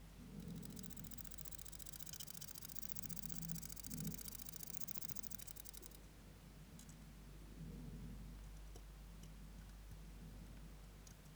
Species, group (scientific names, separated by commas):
Odontura glabricauda, Orthoptera